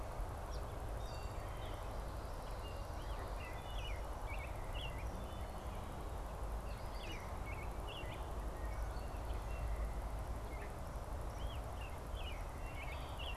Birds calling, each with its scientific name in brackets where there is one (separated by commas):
Gray Catbird (Dumetella carolinensis), American Robin (Turdus migratorius)